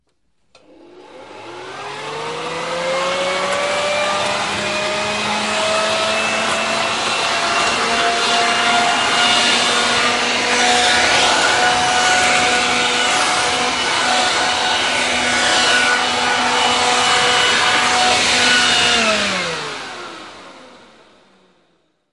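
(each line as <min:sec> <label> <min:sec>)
0:00.0 Garden vacuum cleaner operating with characteristic suction airflow sound in an enclosed garage. 0:22.1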